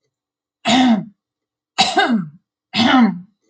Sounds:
Throat clearing